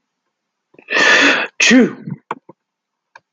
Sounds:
Sneeze